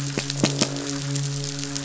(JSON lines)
{"label": "biophony, croak", "recorder": "SoundTrap 500"}
{"label": "biophony, midshipman", "recorder": "SoundTrap 500"}